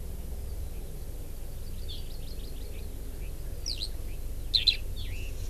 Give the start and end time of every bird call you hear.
[1.91, 3.01] Hawaii Amakihi (Chlorodrepanis virens)
[3.61, 3.91] Eurasian Skylark (Alauda arvensis)
[4.51, 5.31] Eurasian Skylark (Alauda arvensis)

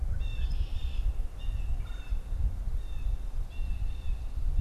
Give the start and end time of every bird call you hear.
[0.00, 4.61] Blue Jay (Cyanocitta cristata)
[0.10, 1.30] Red-winged Blackbird (Agelaius phoeniceus)
[1.60, 2.40] Red-bellied Woodpecker (Melanerpes carolinus)

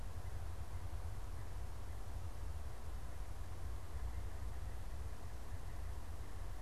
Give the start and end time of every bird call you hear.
[0.00, 6.62] unidentified bird

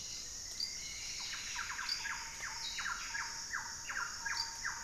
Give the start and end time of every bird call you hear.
[0.00, 3.19] Mealy Parrot (Amazona farinosa)
[0.00, 4.83] Hauxwell's Thrush (Turdus hauxwelli)
[0.09, 3.08] Plumbeous Antbird (Myrmelastes hyperythrus)

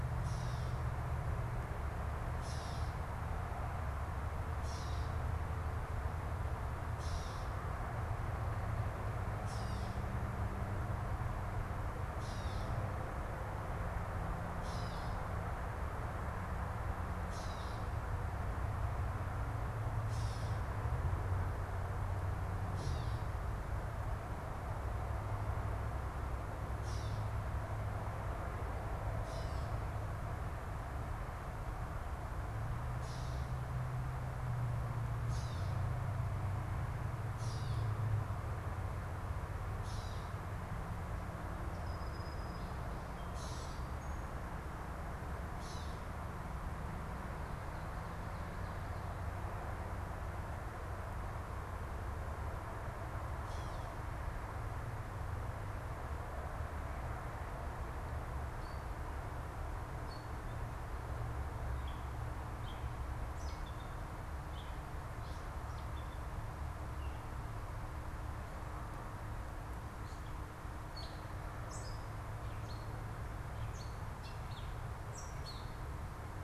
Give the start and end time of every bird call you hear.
[0.05, 0.95] Gray Catbird (Dumetella carolinensis)
[2.25, 2.95] Gray Catbird (Dumetella carolinensis)
[4.45, 5.25] Gray Catbird (Dumetella carolinensis)
[6.85, 7.65] Gray Catbird (Dumetella carolinensis)
[9.35, 10.15] Gray Catbird (Dumetella carolinensis)
[11.95, 12.75] Gray Catbird (Dumetella carolinensis)
[14.45, 15.25] Gray Catbird (Dumetella carolinensis)
[17.05, 18.05] Gray Catbird (Dumetella carolinensis)
[19.85, 20.75] Gray Catbird (Dumetella carolinensis)
[22.55, 23.45] Gray Catbird (Dumetella carolinensis)
[26.65, 27.45] Gray Catbird (Dumetella carolinensis)
[29.05, 29.95] Gray Catbird (Dumetella carolinensis)
[32.85, 33.65] Gray Catbird (Dumetella carolinensis)
[35.15, 35.95] Gray Catbird (Dumetella carolinensis)
[37.35, 37.95] Gray Catbird (Dumetella carolinensis)
[39.75, 40.55] Gray Catbird (Dumetella carolinensis)
[41.65, 44.95] Song Sparrow (Melospiza melodia)
[43.05, 43.95] Gray Catbird (Dumetella carolinensis)
[45.45, 46.15] Gray Catbird (Dumetella carolinensis)
[53.25, 53.95] Gray Catbird (Dumetella carolinensis)
[58.45, 76.44] Gray Catbird (Dumetella carolinensis)

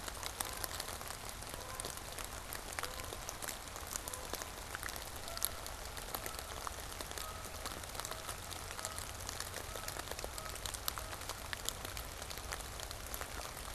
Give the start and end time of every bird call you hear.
[0.00, 3.37] Canada Goose (Branta canadensis)
[3.87, 13.74] Canada Goose (Branta canadensis)

